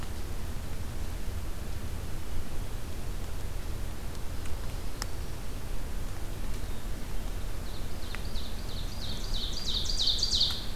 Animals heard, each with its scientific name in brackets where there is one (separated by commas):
Ovenbird (Seiurus aurocapilla)